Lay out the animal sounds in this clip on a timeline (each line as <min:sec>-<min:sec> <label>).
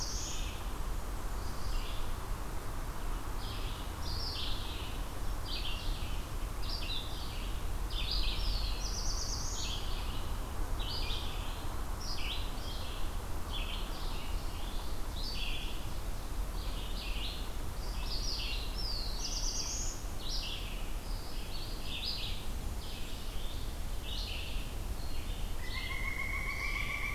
0:00.0-0:00.5 Black-throated Blue Warbler (Setophaga caerulescens)
0:00.0-0:27.1 Red-eyed Vireo (Vireo olivaceus)
0:07.8-0:09.8 Black-throated Blue Warbler (Setophaga caerulescens)
0:18.2-0:20.0 Black-throated Blue Warbler (Setophaga caerulescens)
0:25.5-0:27.1 Pileated Woodpecker (Dryocopus pileatus)